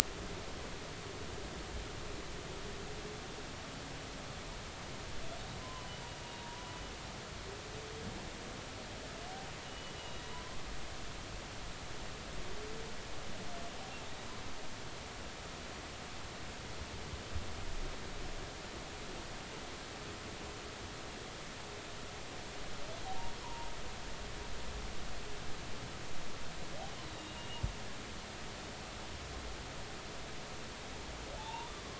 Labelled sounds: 5.6	6.7	humpback whale, 0.90 to 1.1 kHz
9.7	10.2	humpback whale, 2.8 to 3.0 kHz
23.4	23.7	humpback whale, 0.90 to 1.1 kHz
27.0	27.6	humpback whale, 2.7 to 4.2 kHz
31.4	31.7	humpback whale, 0.80 to 1.0 kHz

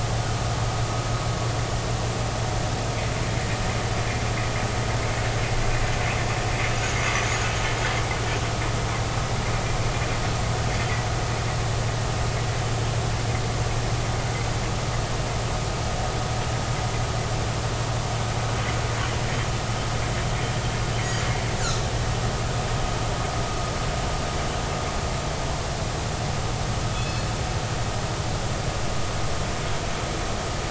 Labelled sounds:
21.0	21.3	killer whale, northern resident, G clan, call N24i, 4.6 to 4.8 kHz
26.9	27.2	killer whale, northern resident, G clan, call N24ii, 2.5 to 3.5 kHz

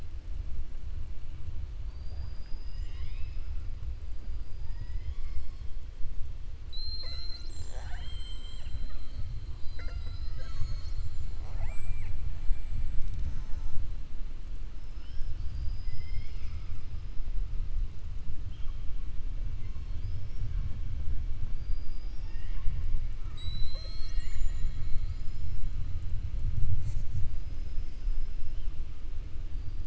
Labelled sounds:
11.3	12.2	killer whale, 0.13 to 2.8 kHz
19.7	20.5	killer whale, 4.3 to 5.6 kHz
21.5	22.8	killer whale, 0.82 to 5.5 kHz
23.1	25.6	killer whale, 0.64 to 8.0 kHz

